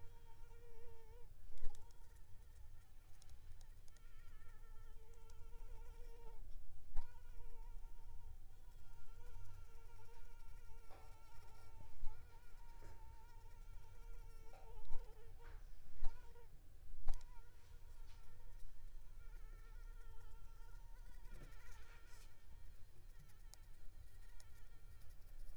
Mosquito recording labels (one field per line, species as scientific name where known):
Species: Anopheles squamosus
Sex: female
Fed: unfed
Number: one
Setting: cup